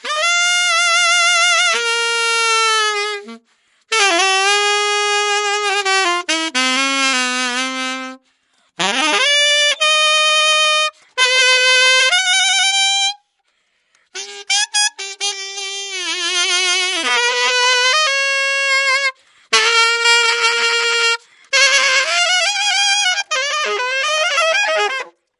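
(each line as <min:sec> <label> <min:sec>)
0:00.0 An atonal saxophone plays a chaotic improvisation. 0:13.2
0:14.1 An atonal saxophone plays a chaotic improvisation. 0:25.2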